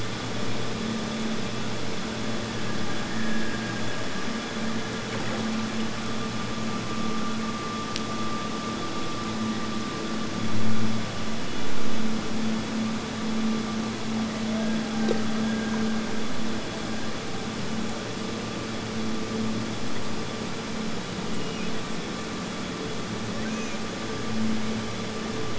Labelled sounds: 2.4	5.5	killer whale, Bigg's (transient), Gulf of Alaska transient, 1.5 to 1.9 kHz
14.5	17.8	killer whale, Bigg's (transient), Gulf of Alaska transient, 1.4 to 1.8 kHz
21.3	22.6	killer whale, Bigg's (transient), Gulf of Alaska transient, 1.5 to 5.9 kHz
23.2	24.0	killer whale, Bigg's (transient), Gulf of Alaska transient, 2.1 to 2.6 kHz

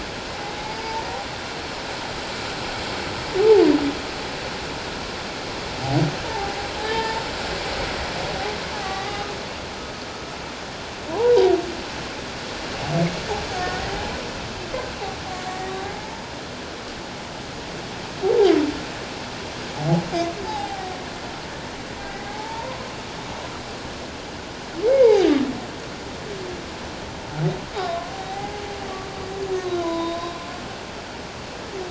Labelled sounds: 0.7	1.0	humpback whale, 0.84 to 5.0 kHz
6.2	7.2	humpback whale, 0.78 to 1.8 kHz
8.8	9.2	humpback whale, 0.78 to 2.1 kHz
11.1	11.3	humpback whale, 0.78 to 1.1 kHz
13.5	13.8	humpback whale, 1.4 to 1.6 kHz
15.5	16.2	humpback whale, 0.78 to 1.9 kHz
18.2	18.5	humpback whale, 0.78 to 0.97 kHz
20.5	20.9	humpback whale, 0.78 to 0.94 kHz
22.3	22.8	humpback whale, 0.78 to 1.1 kHz
24.9	25.4	humpback whale, 2.1 to 4.0 kHz
27.8	28.1	humpback whale, 1.0 to 1.2 kHz
29.8	30.3	humpback whale, 0.94 to 1.1 kHz

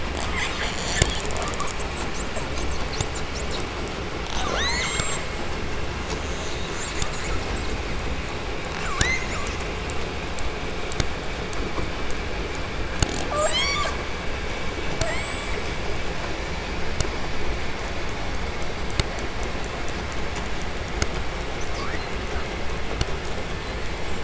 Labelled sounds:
0.0	3.8	killer whale, southern resident, call S10, 0.25 to 8.0 kHz
4.2	5.4	killer whale, southern resident, J pod, call S44, 0.30 to 8.0 kHz
6.0	8.1	killer whale, southern resident, call S10, 0.38 to 8.0 kHz
8.5	9.7	killer whale, southern resident, 0.48 to 8.0 kHz
13.1	14.1	killer whale, southern resident, J pod, call S44, 0.23 to 8.0 kHz
14.8	15.7	killer whale, southern resident, J pod, call S44, 0.35 to 8.0 kHz
21.5	22.5	killer whale, 0.53 to 8.0 kHz

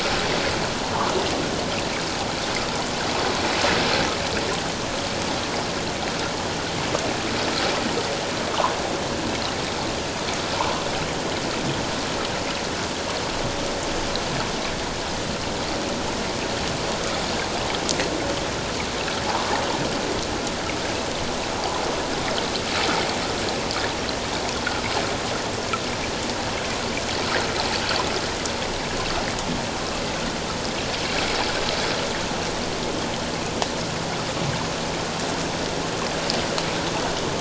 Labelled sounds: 10.6	10.8	water noise, 0.84 to 1.2 kHz

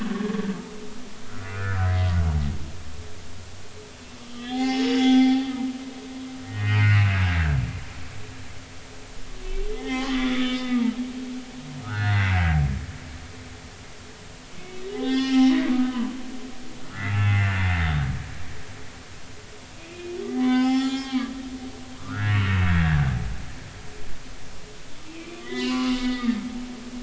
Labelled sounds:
1.2	1.9	humpback whale, 1.2 to 2.6 kHz
4.3	5.5	humpback whale, 0.80 to 5.5 kHz
6.5	7.6	humpback whale, 1.5 to 3.2 kHz
9.7	10.9	humpback whale, 0.80 to 5.3 kHz
11.8	12.4	humpback whale, 1.2 to 4.3 kHz
14.6	16.2	humpback whale, 0.80 to 5.6 kHz
16.9	17.6	humpback whale, 1.2 to 2.8 kHz
19.8	21.3	humpback whale, 0.80 to 7.3 kHz
21.7	23.1	humpback whale, 1.1 to 7.0 kHz
25.1	26.4	humpback whale, 0.93 to 4.1 kHz

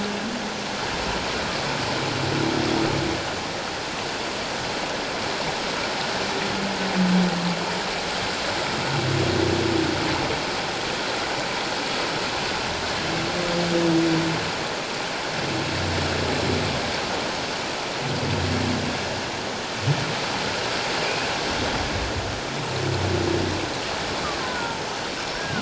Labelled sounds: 21.0	21.3	humpback whale, 2.3 to 2.6 kHz
24.4	24.8	killer whale, Bigg's (transient), 0.88 to 1.6 kHz
25.4	25.6	killer whale, Bigg's (transient), 1.4 to 1.7 kHz

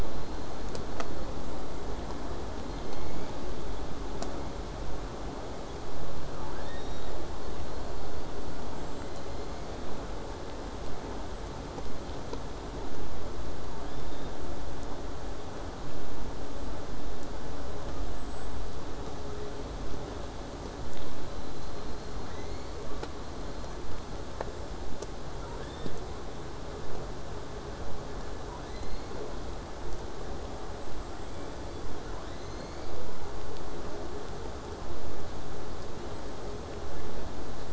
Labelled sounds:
0.0	1.3	killer whale, southern resident, J pod, 3.9 to 8.0 kHz
6.4	7.2	killer whale, southern resident, J pod, 0.65 to 5.8 kHz
13.8	14.4	killer whale, southern resident, J pod, 2.9 to 5.8 kHz
17.9	18.7	killer whale, southern resident, J pod, whistle, 6.7 to 7.9 kHz
21.2	22.3	killer whale, southern resident, J pod, whistle, 3.8 to 4.4 kHz
22.1	23.2	killer whale, southern resident, J pod, call S02i, 0.68 to 7.4 kHz
23.2	24.3	killer whale, southern resident, J pod, whistle, 3.8 to 4.5 kHz
25.3	26.3	killer whale, southern resident, J pod, call S02i, 0.73 to 8.0 kHz
28.5	29.3	killer whale, southern resident, J pod, 0.81 to 6.6 kHz
30.8	31.9	killer whale, southern resident, J pod, whistle, 1.6 to 8.0 kHz
32.0	33.3	killer whale, southern resident, J pod, call S02i, 0.43 to 7.3 kHz

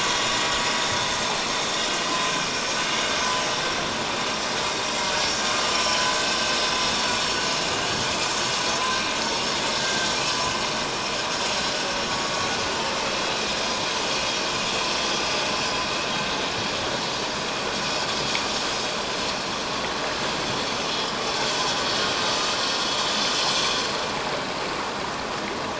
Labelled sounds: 9.8	10.1	vessel noise, 1.5 to 1.7 kHz

